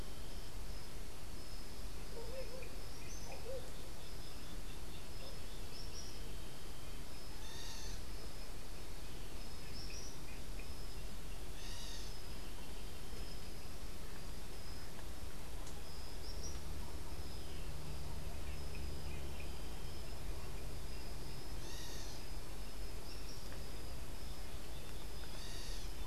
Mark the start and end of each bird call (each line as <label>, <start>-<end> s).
Tropical Kingbird (Tyrannus melancholicus), 2.8-3.6 s
unidentified bird, 7.3-8.2 s
unidentified bird, 11.5-12.3 s
unidentified bird, 21.5-22.4 s
unidentified bird, 25.1-26.1 s